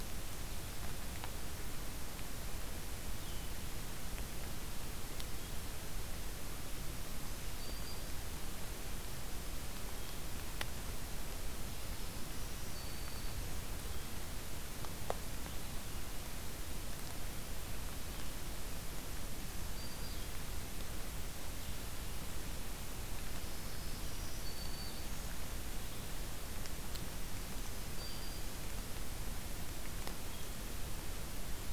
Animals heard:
Blue-headed Vireo (Vireo solitarius), Black-throated Green Warbler (Setophaga virens)

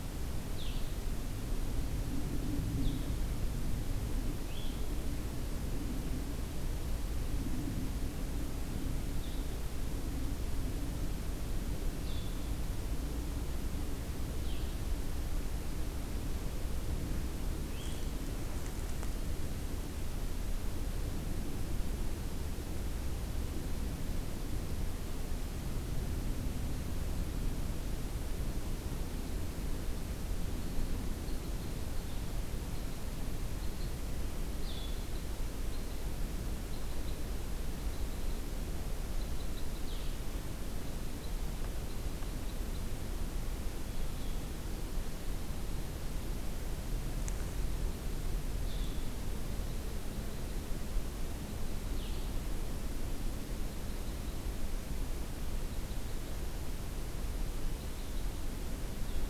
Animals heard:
Red Crossbill (Loxia curvirostra), Blue-headed Vireo (Vireo solitarius)

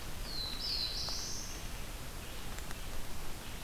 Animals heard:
Red-eyed Vireo (Vireo olivaceus), Black-throated Blue Warbler (Setophaga caerulescens)

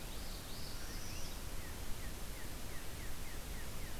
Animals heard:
Northern Parula (Setophaga americana), Northern Cardinal (Cardinalis cardinalis)

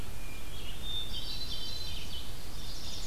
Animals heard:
Red-eyed Vireo (Vireo olivaceus), Hermit Thrush (Catharus guttatus), Chestnut-sided Warbler (Setophaga pensylvanica)

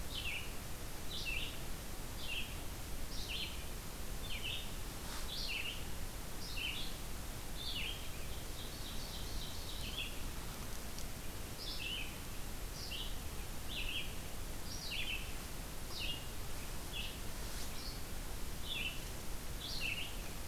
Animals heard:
Ovenbird (Seiurus aurocapilla), Red-eyed Vireo (Vireo olivaceus)

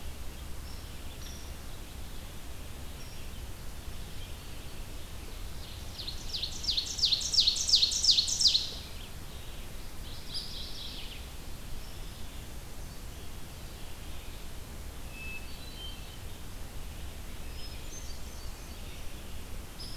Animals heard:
Red-eyed Vireo (Vireo olivaceus), Hermit Thrush (Catharus guttatus), Mourning Warbler (Geothlypis philadelphia), Hairy Woodpecker (Dryobates villosus), Ovenbird (Seiurus aurocapilla)

